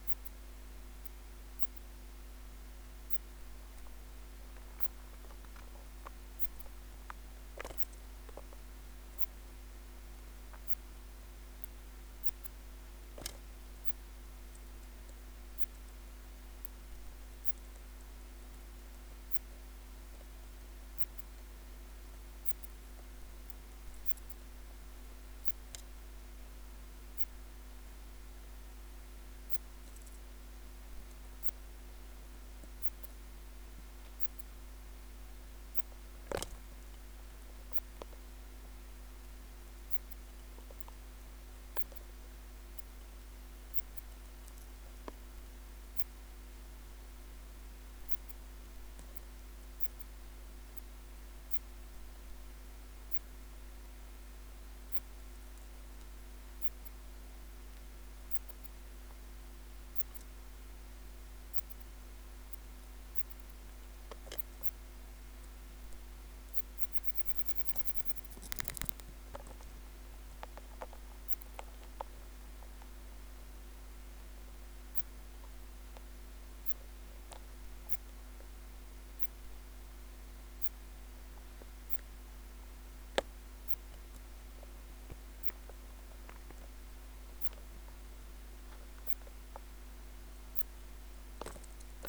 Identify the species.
Phaneroptera falcata